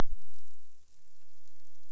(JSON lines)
{"label": "biophony", "recorder": "SoundTrap 300"}